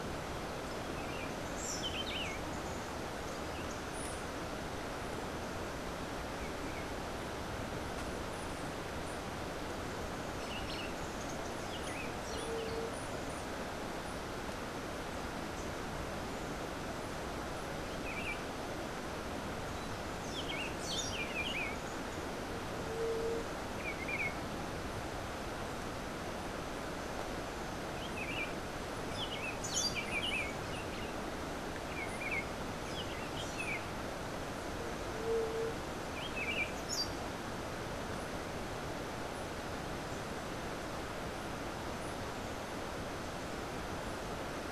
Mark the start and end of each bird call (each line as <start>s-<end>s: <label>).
1.3s-2.7s: Buff-throated Saltator (Saltator maximus)
10.1s-11.5s: Buff-throated Saltator (Saltator maximus)
20.3s-21.7s: Buff-throated Saltator (Saltator maximus)
22.5s-24.2s: White-tipped Dove (Leptotila verreauxi)
29.1s-30.5s: Buff-throated Saltator (Saltator maximus)
32.6s-34.0s: Buff-throated Saltator (Saltator maximus)
36.0s-37.4s: Buff-throated Saltator (Saltator maximus)